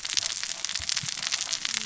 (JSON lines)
{"label": "biophony, cascading saw", "recorder": "SoundTrap 600 or HydroMoth"}